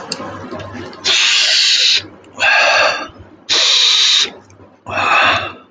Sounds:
Sniff